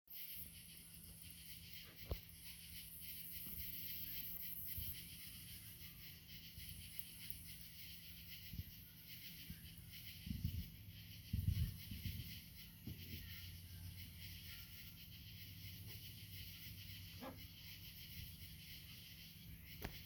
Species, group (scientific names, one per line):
Pterophylla camellifolia
Orthoptera